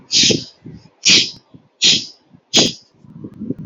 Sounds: Sneeze